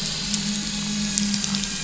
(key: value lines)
label: anthrophony, boat engine
recorder: SoundTrap 500